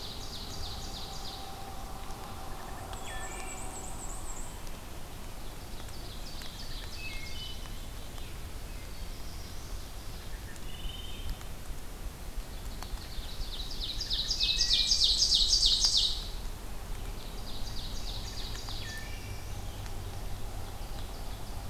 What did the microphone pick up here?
Ovenbird, Wood Thrush, Black-and-white Warbler, Black-capped Chickadee, Black-throated Blue Warbler, Ruffed Grouse